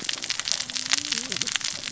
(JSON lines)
{"label": "biophony, cascading saw", "recorder": "SoundTrap 600 or HydroMoth"}